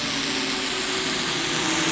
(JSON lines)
{"label": "anthrophony, boat engine", "recorder": "SoundTrap 500"}
{"label": "biophony, dolphin", "recorder": "SoundTrap 500"}